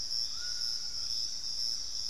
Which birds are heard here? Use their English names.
Hauxwell's Thrush, Piratic Flycatcher, Thrush-like Wren, White-throated Toucan